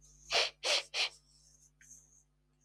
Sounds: Sniff